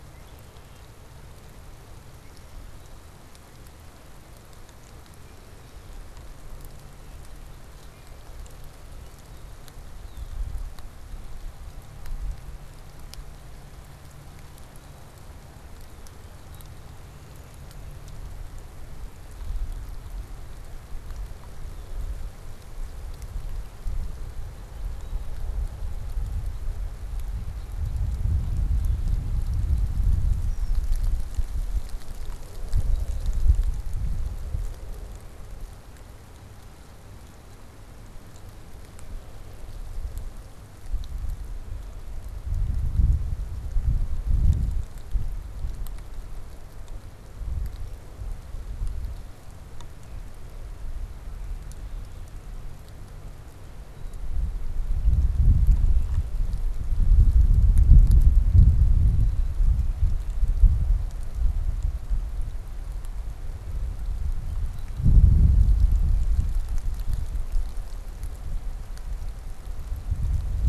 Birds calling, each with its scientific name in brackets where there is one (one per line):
Red-winged Blackbird (Agelaius phoeniceus)